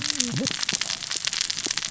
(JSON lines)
{"label": "biophony, cascading saw", "recorder": "SoundTrap 600 or HydroMoth"}